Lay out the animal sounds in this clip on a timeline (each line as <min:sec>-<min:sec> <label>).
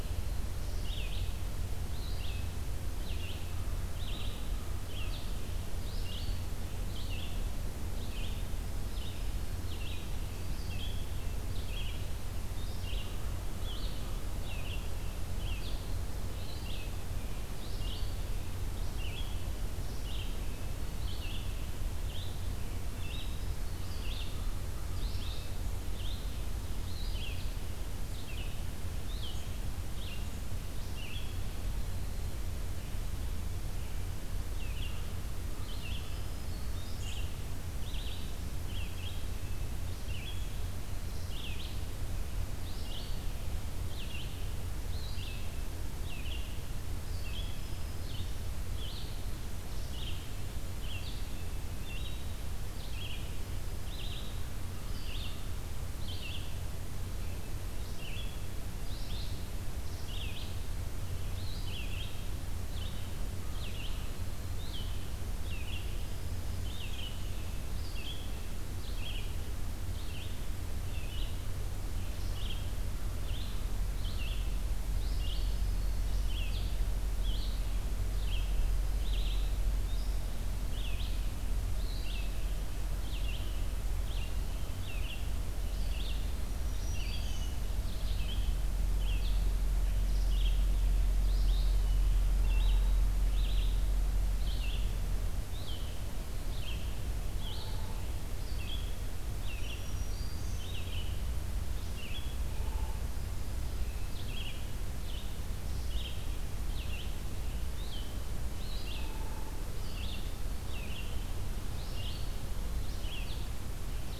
0:00.0-0:31.3 Red-eyed Vireo (Vireo olivaceus)
0:03.3-0:05.3 American Crow (Corvus brachyrhynchos)
0:08.6-0:09.8 Black-throated Green Warbler (Setophaga virens)
0:13.0-0:15.1 American Crow (Corvus brachyrhynchos)
0:34.5-0:41.9 Red-eyed Vireo (Vireo olivaceus)
0:35.9-0:37.0 Black-throated Green Warbler (Setophaga virens)
0:42.6-1:40.0 Red-eyed Vireo (Vireo olivaceus)
0:47.4-0:48.4 Black-throated Green Warbler (Setophaga virens)
1:15.3-1:16.2 Black-throated Green Warbler (Setophaga virens)
1:26.3-1:27.6 Black-throated Green Warbler (Setophaga virens)
1:39.5-1:40.7 Black-throated Green Warbler (Setophaga virens)
1:40.5-1:54.2 Red-eyed Vireo (Vireo olivaceus)
1:42.4-1:43.0 Hairy Woodpecker (Dryobates villosus)
1:43.1-1:44.3 Black-throated Green Warbler (Setophaga virens)
1:48.9-1:49.7 Hairy Woodpecker (Dryobates villosus)